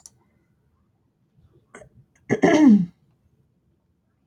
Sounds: Throat clearing